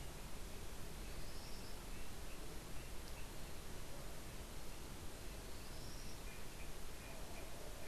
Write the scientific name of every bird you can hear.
Tyrannus melancholicus